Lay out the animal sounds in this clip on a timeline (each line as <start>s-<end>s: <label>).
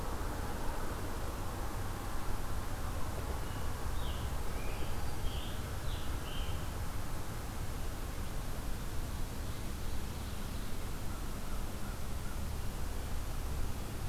3.4s-6.9s: Scarlet Tanager (Piranga olivacea)